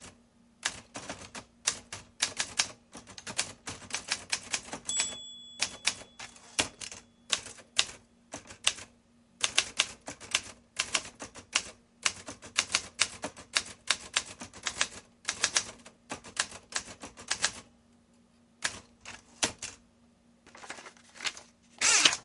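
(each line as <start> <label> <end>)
0.1 A typewriter taps softly with an uneven pace. 4.8
4.8 Typewriter dinging softly at the end of the line. 5.9
6.0 Typewriter clicking distinctly with an uneven pattern. 17.7
20.5 A typewriter keys are typing rapidly while the carriage returns, with paper rustling in the background. 22.2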